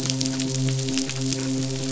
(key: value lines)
label: biophony, midshipman
recorder: SoundTrap 500